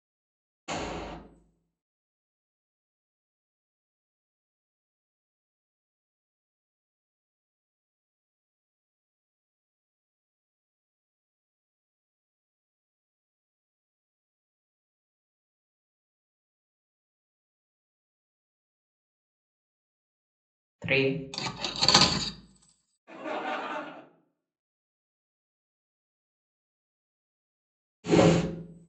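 At 0.68 seconds, gunfire is heard. Then, at 20.82 seconds, someone says "three." After that, at 21.32 seconds, there is the sound of cutlery. Afterwards, at 23.06 seconds, someone chuckles. Later, at 28.03 seconds, a whoosh is audible.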